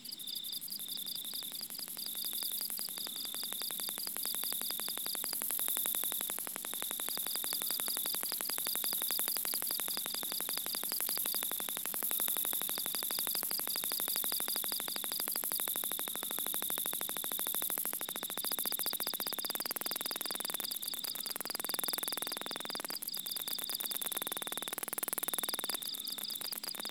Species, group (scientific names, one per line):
Ducetia japonica
Orthoptera